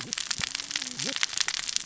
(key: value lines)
label: biophony, cascading saw
recorder: SoundTrap 600 or HydroMoth